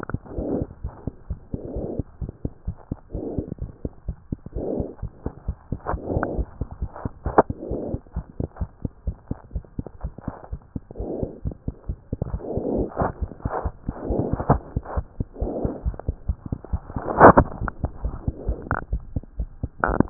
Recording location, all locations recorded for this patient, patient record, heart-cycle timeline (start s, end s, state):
pulmonary valve (PV)
aortic valve (AV)+pulmonary valve (PV)+tricuspid valve (TV)+mitral valve (MV)
#Age: Child
#Sex: Female
#Height: 89.0 cm
#Weight: 14.1 kg
#Pregnancy status: False
#Murmur: Absent
#Murmur locations: nan
#Most audible location: nan
#Systolic murmur timing: nan
#Systolic murmur shape: nan
#Systolic murmur grading: nan
#Systolic murmur pitch: nan
#Systolic murmur quality: nan
#Diastolic murmur timing: nan
#Diastolic murmur shape: nan
#Diastolic murmur grading: nan
#Diastolic murmur pitch: nan
#Diastolic murmur quality: nan
#Outcome: Normal
#Campaign: 2015 screening campaign
0.00	6.36	unannotated
6.36	6.44	S1
6.44	6.59	systole
6.59	6.67	S2
6.67	6.79	diastole
6.79	6.90	S1
6.90	7.02	systole
7.02	7.11	S2
7.11	7.23	diastole
7.23	7.33	S1
7.33	7.47	systole
7.47	7.53	S2
7.53	7.68	diastole
7.68	7.77	S1
7.77	7.91	systole
7.91	8.00	S2
8.00	8.13	diastole
8.13	8.26	S1
8.26	8.36	systole
8.36	8.43	S2
8.43	8.59	diastole
8.59	8.68	S1
8.68	8.82	systole
8.82	8.88	S2
8.88	9.05	diastole
9.05	9.16	S1
9.16	9.29	systole
9.29	9.37	S2
9.37	9.53	diastole
9.53	9.64	S1
9.64	9.77	systole
9.77	9.84	S2
9.84	10.02	diastole
10.02	10.14	S1
10.14	10.26	systole
10.26	10.34	S2
10.34	10.49	diastole
10.49	10.59	S1
10.59	10.73	systole
10.73	10.82	S2
10.82	10.98	diastole
10.98	11.06	S1
11.06	11.20	systole
11.20	11.27	S2
11.27	11.43	diastole
11.43	11.55	S1
11.55	11.65	systole
11.65	11.76	S2
11.76	11.87	diastole
11.87	11.98	S1
11.98	12.12	systole
12.12	20.10	unannotated